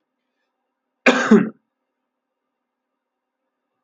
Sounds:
Sneeze